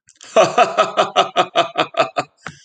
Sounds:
Laughter